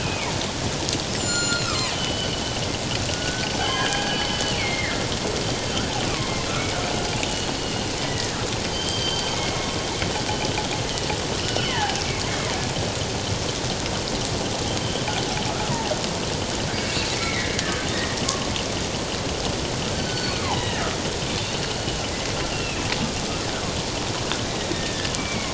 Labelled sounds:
1.1	2.4	killer whale, northern resident, G clan, 0.91 to 7.8 kHz
3.1	4.2	killer whale, northern resident, G clan, 1.4 to 3.4 kHz
4.5	5.0	killer whale, northern resident, G clan, 1.7 to 2.5 kHz
7.6	8.4	killer whale, northern resident, G clan, 1.6 to 2.9 kHz
8.7	9.7	killer whale, northern resident, G clan, 2.1 to 4.9 kHz
10.8	12.0	killer whale, northern resident, G clan, 0.78 to 3.2 kHz
14.8	15.1	killer whale, northern resident, G clan, 3.0 to 3.2 kHz
16.8	17.5	killer whale, northern resident, G clan, 1.7 to 2.8 kHz
18.3	18.5	killer whale, northern resident, G clan, 1.0 to 1.2 kHz
20.0	20.8	killer whale, northern resident, G clan, 0.78 to 4.6 kHz
21.3	21.6	killer whale, northern resident, G clan, 3.5 to 3.8 kHz
22.5	22.9	killer whale, northern resident, G clan, 2.4 to 2.9 kHz
24.7	25.5	killer whale, northern resident, G clan, 1.7 to 2.5 kHz

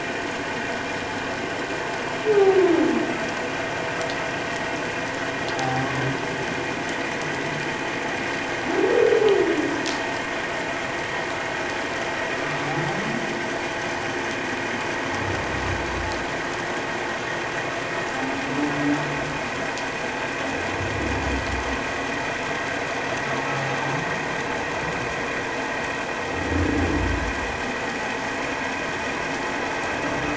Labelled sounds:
5.5	5.9	humpback whale, 0.78 to 0.88 kHz

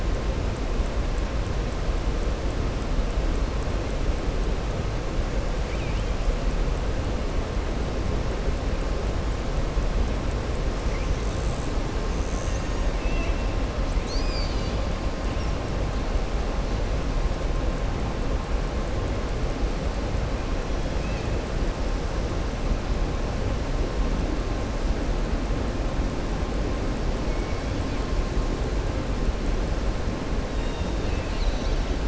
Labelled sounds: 5.6	6.1	killer whale, southern resident, 2.1 to 3.8 kHz
12.9	13.4	killer whale, southern resident, 1.8 to 3.4 kHz

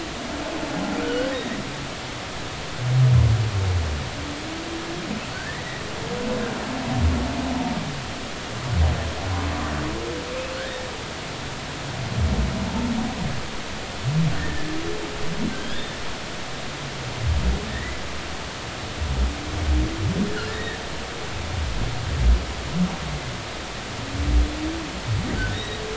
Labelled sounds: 1.0	1.6	humpback whale, 1.3 to 3.0 kHz
5.3	5.6	humpback whale, 1.4 to 2.0 kHz
14.4	14.7	humpback whale, 1.6 to 1.9 kHz
15.6	16.0	humpback whale, 3.0 to 3.7 kHz
17.7	18.0	humpback whale, 1.7 to 2.1 kHz
20.5	20.8	humpback whale, 1.7 to 2.0 kHz
25.5	25.8	humpback whale, 1.7 to 3.9 kHz

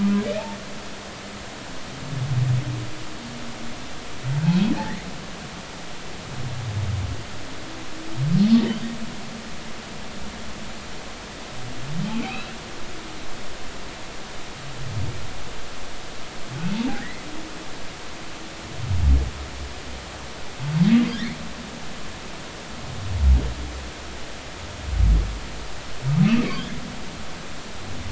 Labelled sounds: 0.0	0.2	humpback whale, 0.96 to 1.1 kHz
12.2	12.5	humpback whale, 2.1 to 2.7 kHz
16.7	17.2	humpback whale, 0.80 to 2.1 kHz
26.5	26.8	humpback whale, 3.0 to 3.6 kHz

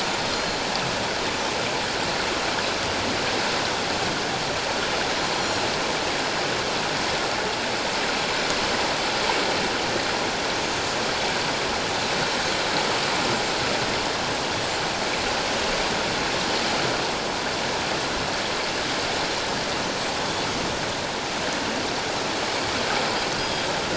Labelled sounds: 0.3	0.6	Pacific white-sided dolphin, 4.1 to 4.3 kHz
5.4	5.7	Pacific white-sided dolphin, 4.1 to 4.3 kHz
10.6	10.9	Pacific white-sided dolphin, 6.2 to 6.5 kHz
19.2	19.5	Pacific white-sided dolphin, 4.0 to 4.2 kHz
23.4	23.7	Pacific white-sided dolphin, 4.8 to 5.0 kHz

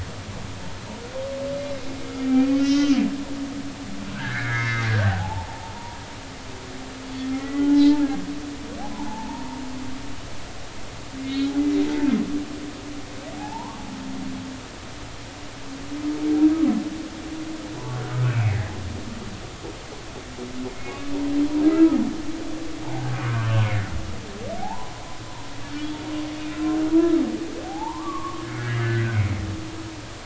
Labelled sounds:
2.3	3.0	humpback whale, 1.2 to 6.3 kHz
4.1	6.0	humpback whale, 0.80 to 2.4 kHz
7.4	8.0	humpback whale, 0.83 to 4.2 kHz
8.9	9.6	humpback whale, 0.80 to 1.1 kHz
11.2	11.5	humpback whale, 2.1 to 3.9 kHz
13.4	13.8	humpback whale, 0.80 to 1.2 kHz
18.2	18.7	humpback whale, 1.6 to 2.6 kHz
21.7	22.0	humpback whale, 1.2 to 1.4 kHz
22.8	23.5	humpback whale, 0.80 to 1.7 kHz
24.6	24.9	humpback whale, 0.80 to 1.1 kHz
25.8	26.1	humpback whale, 3.3 to 3.4 kHz
26.9	29.2	humpback whale, 0.80 to 2.1 kHz

